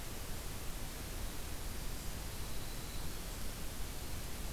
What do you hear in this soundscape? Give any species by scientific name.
Troglodytes hiemalis